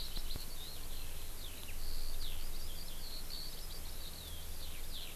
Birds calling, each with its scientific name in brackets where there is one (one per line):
Eurasian Skylark (Alauda arvensis)